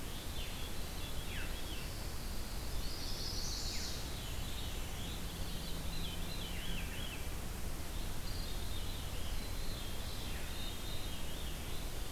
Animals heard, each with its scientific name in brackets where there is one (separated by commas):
Pine Warbler (Setophaga pinus), Chestnut-sided Warbler (Setophaga pensylvanica), Veery (Catharus fuscescens)